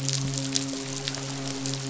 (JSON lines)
{"label": "biophony, midshipman", "recorder": "SoundTrap 500"}